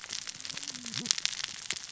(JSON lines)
{"label": "biophony, cascading saw", "recorder": "SoundTrap 600 or HydroMoth"}